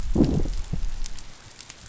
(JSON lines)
{"label": "biophony, growl", "recorder": "SoundTrap 500"}